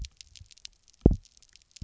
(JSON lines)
{"label": "biophony, double pulse", "recorder": "SoundTrap 300"}